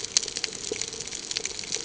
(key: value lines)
label: ambient
recorder: HydroMoth